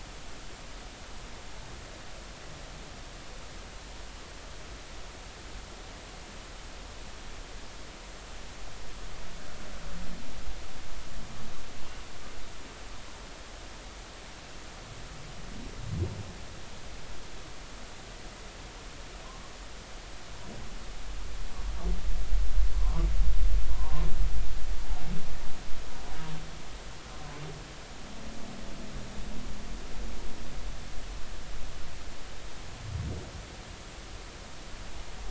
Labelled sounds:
19.2	19.5	humpback whale, 0.96 to 1.2 kHz
22.7	24.1	humpback whale, 0.90 to 1.2 kHz

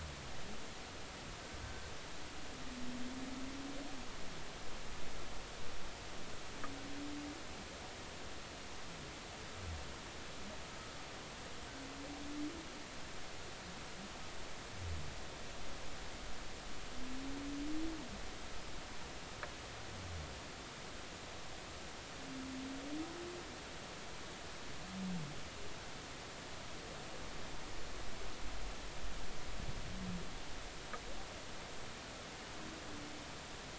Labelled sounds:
1.6	1.9	humpback whale, 1.5 to 1.6 kHz

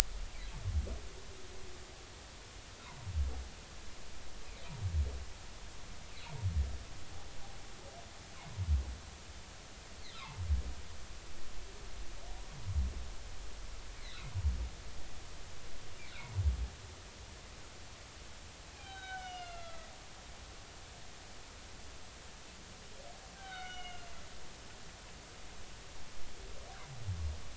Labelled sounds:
2.8	3.1	humpback whale, 0.86 to 1.2 kHz
10.1	10.4	humpback whale, 0.83 to 1.4 kHz
14.0	14.3	humpback whale, 3.4 to 4.3 kHz
18.7	19.9	humpback whale, 0.80 to 4.1 kHz
23.3	24.2	humpback whale, 1.3 to 6.0 kHz

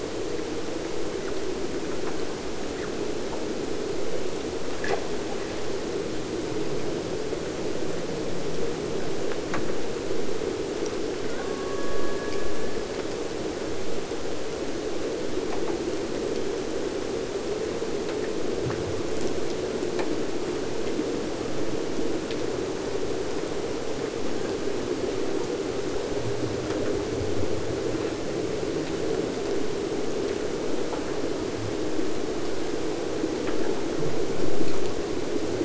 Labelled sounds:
11.2	13.0	killer whale, Bigg's (transient), AT1 transient, 1.0 to 3.6 kHz

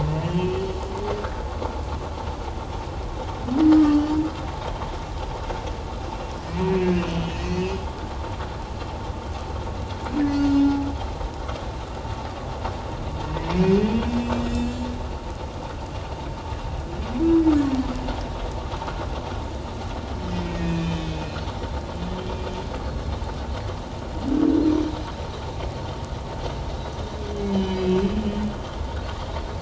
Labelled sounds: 0.4	0.8	humpback whale, 2.9 to 3.1 kHz
6.6	7.8	humpback whale, 1.7 to 3.1 kHz
10.3	10.5	humpback whale, 6.2 to 6.3 kHz
14.1	14.9	humpback whale, 2.6 to 7.6 kHz
20.4	21.4	humpback whale, 1.7 to 2.7 kHz
27.5	28.1	humpback whale, 2.5 to 4.0 kHz

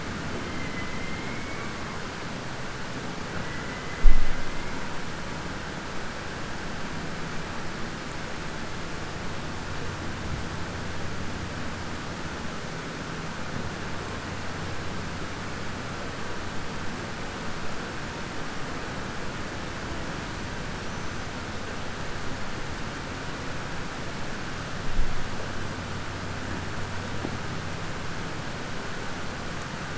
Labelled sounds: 0.5	1.7	killer whale, southern resident, 2.0 to 3.1 kHz
3.3	3.8	killer whale, southern resident, 1.3 to 2.8 kHz
20.8	21.2	killer whale, southern resident, 5.4 to 6.2 kHz

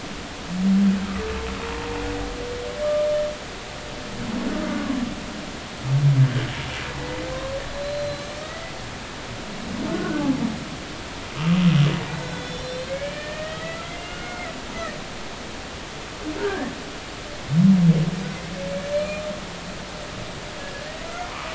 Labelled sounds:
7.7	8.7	humpback whale, 1.8 to 4.1 kHz
9.9	10.2	humpback whale, 1.4 to 1.6 kHz
12.0	14.5	humpback whale, 1.2 to 5.6 kHz
16.4	16.7	humpback whale, 1.5 to 1.9 kHz
18.9	19.2	humpback whale, 2.3 to 4.3 kHz
21.3	21.5	humpback whale, 0.93 to 1.3 kHz

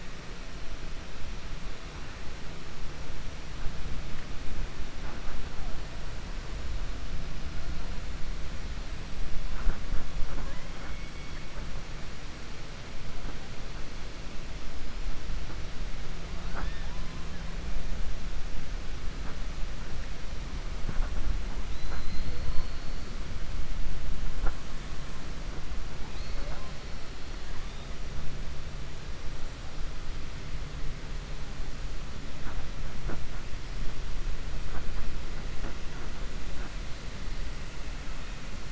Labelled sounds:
21.6	23.0	killer whale, 3.3 to 4.5 kHz

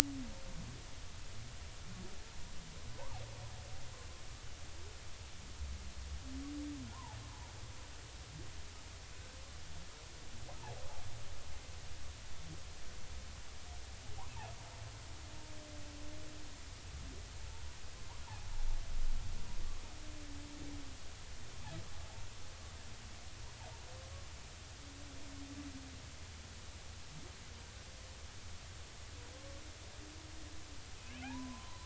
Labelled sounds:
2.9	3.2	humpback whale, 0.80 to 1.2 kHz
6.9	7.5	humpback whale, 0.80 to 1.1 kHz
10.6	10.8	humpback whale, 0.80 to 1.0 kHz
31.2	31.8	humpback whale, 0.80 to 1.1 kHz

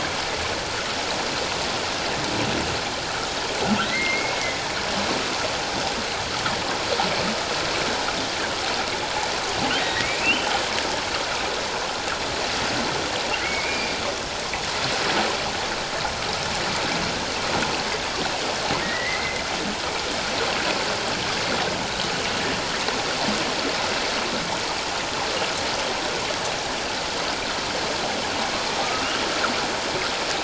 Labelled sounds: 3.8	4.6	humpback whale, 1.8 to 2.3 kHz
9.8	10.5	humpback whale, 1.7 to 3.2 kHz
13.4	13.9	humpback whale, 1.9 to 2.5 kHz
18.8	19.4	humpback whale, 1.8 to 2.2 kHz
28.8	29.1	humpback whale, 1.2 to 1.4 kHz

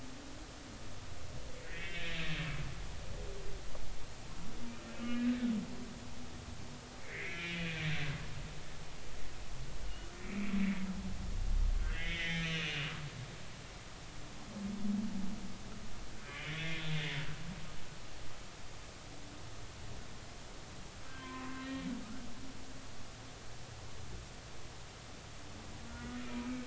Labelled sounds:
1.6	2.2	humpback whale, 1.6 to 3.8 kHz
5.0	5.2	humpback whale, 2.8 to 2.9 kHz
7.0	7.7	humpback whale, 1.6 to 3.0 kHz
10.2	10.5	humpback whale, 2.0 to 2.6 kHz
11.8	12.9	humpback whale, 1.4 to 3.8 kHz
16.2	16.8	humpback whale, 1.6 to 3.5 kHz
21.1	21.9	humpback whale, 0.99 to 3.2 kHz
25.9	26.2	humpback whale, 1.4 to 1.5 kHz

